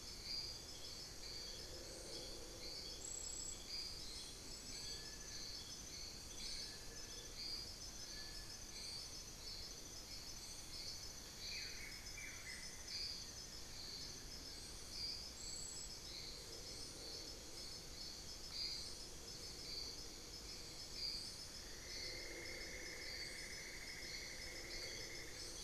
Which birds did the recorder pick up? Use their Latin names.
Xiphorhynchus guttatus, Nasica longirostris, Dendrexetastes rufigula